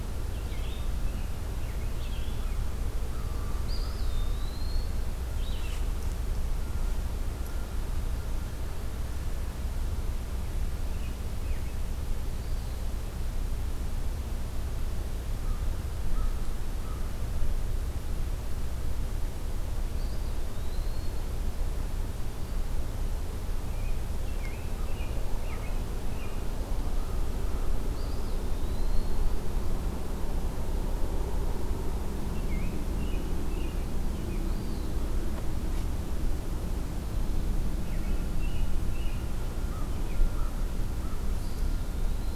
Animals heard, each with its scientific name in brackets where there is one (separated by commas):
Red-eyed Vireo (Vireo olivaceus), American Robin (Turdus migratorius), American Crow (Corvus brachyrhynchos), Eastern Wood-Pewee (Contopus virens)